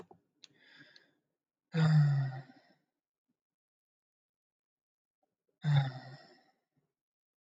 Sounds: Sigh